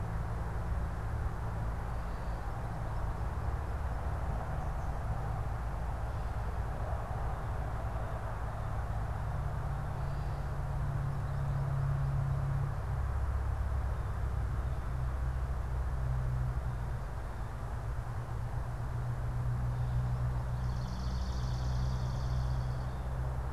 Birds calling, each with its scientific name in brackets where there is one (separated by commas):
Gray Catbird (Dumetella carolinensis), Swamp Sparrow (Melospiza georgiana), American Goldfinch (Spinus tristis)